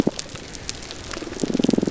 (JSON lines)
{"label": "biophony, damselfish", "recorder": "SoundTrap 300"}